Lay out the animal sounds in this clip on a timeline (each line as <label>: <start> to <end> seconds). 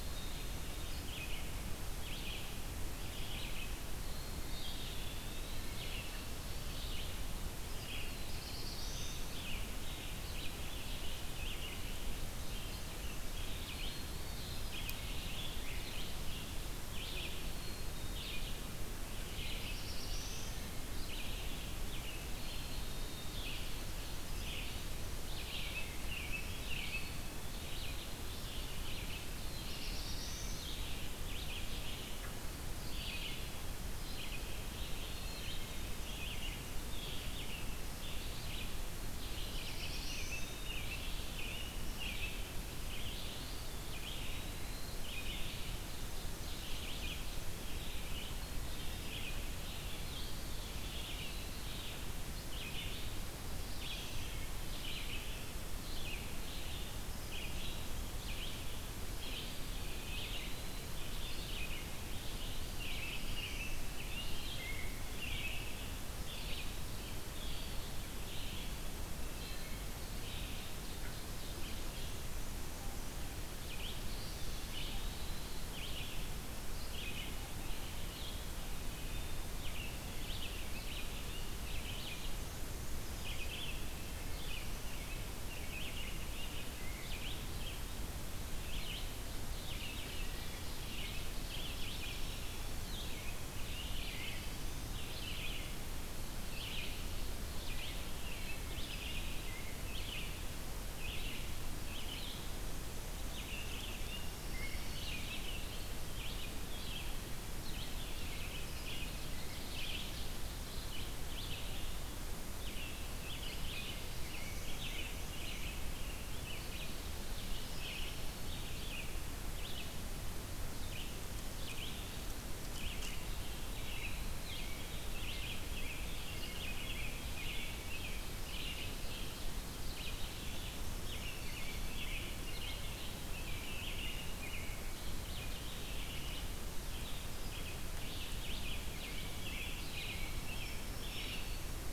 Black-capped Chickadee (Poecile atricapillus): 0.0 to 0.7 seconds
Red-eyed Vireo (Vireo olivaceus): 0.0 to 78.5 seconds
Black-capped Chickadee (Poecile atricapillus): 3.9 to 5.0 seconds
Eastern Wood-Pewee (Contopus virens): 4.6 to 6.0 seconds
Black-throated Blue Warbler (Setophaga caerulescens): 7.7 to 9.4 seconds
American Robin (Turdus migratorius): 11.2 to 11.9 seconds
Black-capped Chickadee (Poecile atricapillus): 13.6 to 14.7 seconds
Black-capped Chickadee (Poecile atricapillus): 17.3 to 18.4 seconds
Black-throated Blue Warbler (Setophaga caerulescens): 19.2 to 20.8 seconds
Black-capped Chickadee (Poecile atricapillus): 22.3 to 23.4 seconds
American Robin (Turdus migratorius): 25.3 to 27.3 seconds
Eastern Wood-Pewee (Contopus virens): 26.7 to 28.1 seconds
Black-throated Blue Warbler (Setophaga caerulescens): 29.1 to 30.9 seconds
Black-capped Chickadee (Poecile atricapillus): 34.9 to 36.0 seconds
Black-throated Blue Warbler (Setophaga caerulescens): 39.1 to 40.9 seconds
American Robin (Turdus migratorius): 39.9 to 42.7 seconds
Eastern Wood-Pewee (Contopus virens): 43.2 to 45.1 seconds
Ovenbird (Seiurus aurocapilla): 45.6 to 47.6 seconds
Eastern Wood-Pewee (Contopus virens): 50.0 to 51.6 seconds
Eastern Wood-Pewee (Contopus virens): 59.4 to 60.9 seconds
Black-throated Blue Warbler (Setophaga caerulescens): 62.5 to 63.8 seconds
Ovenbird (Seiurus aurocapilla): 70.5 to 72.1 seconds
Eastern Wood-Pewee (Contopus virens): 73.9 to 75.7 seconds
Wood Thrush (Hylocichla mustelina): 78.8 to 79.4 seconds
Red-eyed Vireo (Vireo olivaceus): 79.3 to 137.3 seconds
Wood Thrush (Hylocichla mustelina): 90.2 to 90.8 seconds
Eastern Wood-Pewee (Contopus virens): 94.2 to 95.5 seconds
Wood Thrush (Hylocichla mustelina): 98.4 to 98.9 seconds
Ovenbird (Seiurus aurocapilla): 109.0 to 110.9 seconds
American Robin (Turdus migratorius): 114.0 to 117.0 seconds
Eastern Wood-Pewee (Contopus virens): 123.1 to 124.5 seconds
American Robin (Turdus migratorius): 125.0 to 129.1 seconds
Ovenbird (Seiurus aurocapilla): 127.8 to 130.2 seconds
American Robin (Turdus migratorius): 130.9 to 135.0 seconds
American Robin (Turdus migratorius): 138.4 to 141.6 seconds
Black-throated Green Warbler (Setophaga virens): 140.1 to 141.9 seconds